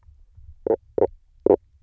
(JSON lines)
{"label": "biophony, knock croak", "recorder": "SoundTrap 300"}